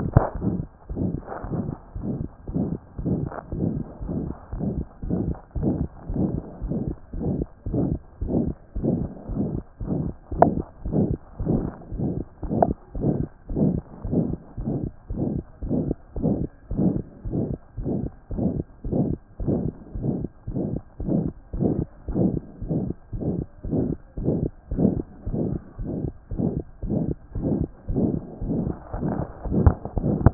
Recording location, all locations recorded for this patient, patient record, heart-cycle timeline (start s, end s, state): aortic valve (AV)
aortic valve (AV)+pulmonary valve (PV)+tricuspid valve (TV)+mitral valve (MV)
#Age: Child
#Sex: Male
#Height: 115.0 cm
#Weight: 17.1 kg
#Pregnancy status: False
#Murmur: Present
#Murmur locations: aortic valve (AV)+mitral valve (MV)+pulmonary valve (PV)+tricuspid valve (TV)
#Most audible location: pulmonary valve (PV)
#Systolic murmur timing: Mid-systolic
#Systolic murmur shape: Diamond
#Systolic murmur grading: III/VI or higher
#Systolic murmur pitch: Medium
#Systolic murmur quality: Harsh
#Diastolic murmur timing: nan
#Diastolic murmur shape: nan
#Diastolic murmur grading: nan
#Diastolic murmur pitch: nan
#Diastolic murmur quality: nan
#Outcome: Normal
#Campaign: 2014 screening campaign
0.00	1.44	unannotated
1.44	1.51	S1
1.51	1.68	systole
1.68	1.74	S2
1.74	1.96	diastole
1.96	2.03	S1
2.03	2.21	systole
2.21	2.26	S2
2.26	2.49	diastole
2.49	2.57	S1
2.57	2.72	systole
2.72	2.78	S2
2.78	3.00	diastole
3.00	3.07	S1
3.07	3.23	systole
3.23	3.30	S2
3.30	3.53	diastole
3.53	3.60	S1
3.60	3.77	systole
3.77	3.83	S2
3.83	4.03	diastole
4.03	4.11	S1
4.11	4.28	systole
4.28	4.34	S2
4.34	4.53	diastole
4.53	30.34	unannotated